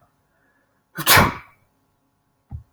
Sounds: Sneeze